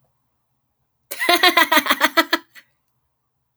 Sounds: Laughter